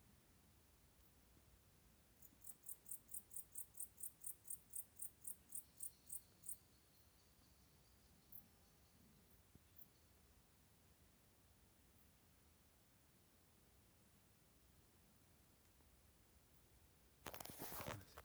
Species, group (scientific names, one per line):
Pholidoptera aptera
Orthoptera